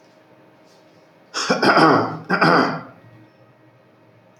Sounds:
Throat clearing